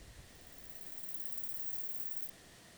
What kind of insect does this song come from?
orthopteran